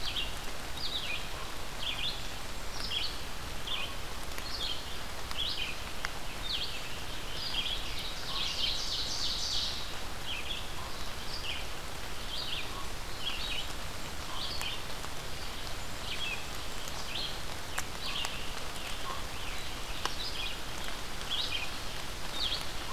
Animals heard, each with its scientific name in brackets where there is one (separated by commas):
Scarlet Tanager (Piranga olivacea), Red-eyed Vireo (Vireo olivaceus), Common Raven (Corvus corax), Ovenbird (Seiurus aurocapilla)